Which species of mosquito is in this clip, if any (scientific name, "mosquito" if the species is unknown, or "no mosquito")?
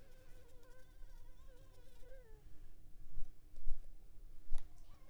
Culex pipiens complex